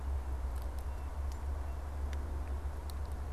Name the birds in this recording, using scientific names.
Cyanocitta cristata